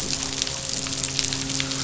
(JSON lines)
{"label": "biophony, midshipman", "recorder": "SoundTrap 500"}